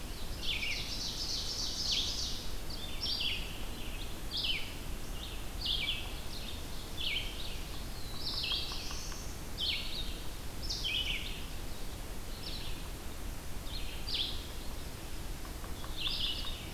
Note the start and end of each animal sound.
[0.00, 16.71] Red-eyed Vireo (Vireo olivaceus)
[0.19, 2.65] Ovenbird (Seiurus aurocapilla)
[7.72, 9.62] Black-throated Blue Warbler (Setophaga caerulescens)

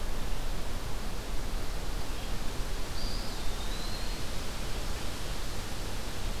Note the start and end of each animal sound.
[0.16, 6.40] Red-eyed Vireo (Vireo olivaceus)
[2.88, 4.37] Eastern Wood-Pewee (Contopus virens)

